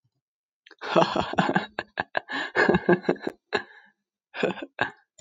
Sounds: Laughter